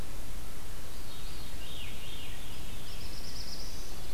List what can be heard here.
Veery, Black-throated Blue Warbler